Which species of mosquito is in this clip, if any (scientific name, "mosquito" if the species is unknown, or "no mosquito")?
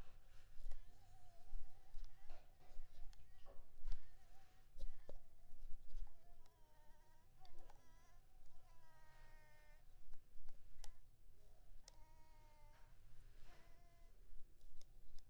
Anopheles maculipalpis